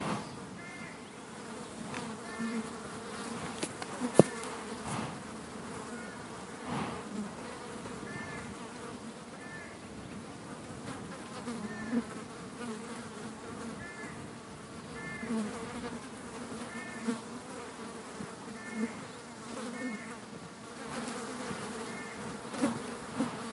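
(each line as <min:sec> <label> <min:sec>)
0:00.0 A swarm of flies buzzing continuously. 0:23.5
0:03.5 The microphone is being touched while flies buzz. 0:04.6
0:04.8 A horse is breathing. 0:05.2
0:06.6 A horse is breathing. 0:07.2
0:15.3 A fly is buzzing nearby. 0:15.7
0:17.1 A fly is buzzing nearby. 0:17.2
0:18.8 A fly is buzzing nearby. 0:19.0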